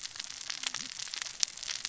{"label": "biophony, cascading saw", "recorder": "SoundTrap 600 or HydroMoth"}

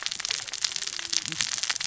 {"label": "biophony, cascading saw", "recorder": "SoundTrap 600 or HydroMoth"}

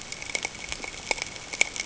{"label": "ambient", "recorder": "HydroMoth"}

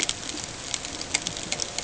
{"label": "ambient", "recorder": "HydroMoth"}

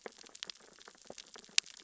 {"label": "biophony, sea urchins (Echinidae)", "recorder": "SoundTrap 600 or HydroMoth"}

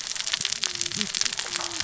{"label": "biophony, cascading saw", "recorder": "SoundTrap 600 or HydroMoth"}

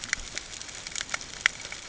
{"label": "ambient", "recorder": "HydroMoth"}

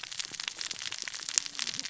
{"label": "biophony, cascading saw", "recorder": "SoundTrap 600 or HydroMoth"}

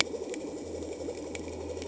{"label": "anthrophony, boat engine", "recorder": "HydroMoth"}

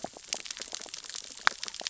{"label": "biophony, sea urchins (Echinidae)", "recorder": "SoundTrap 600 or HydroMoth"}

